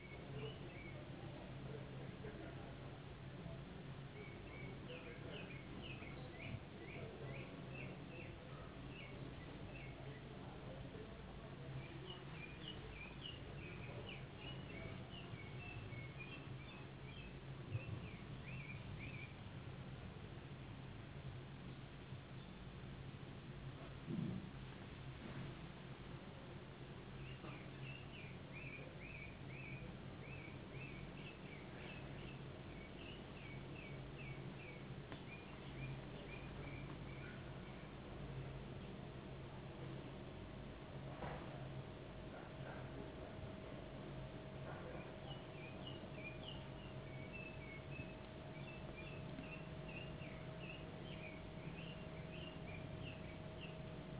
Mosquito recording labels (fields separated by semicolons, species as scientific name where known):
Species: no mosquito; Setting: insect culture